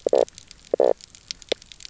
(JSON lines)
{"label": "biophony, knock croak", "recorder": "SoundTrap 300"}